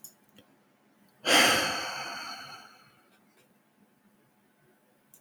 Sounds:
Sigh